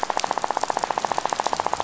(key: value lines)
label: biophony, rattle
recorder: SoundTrap 500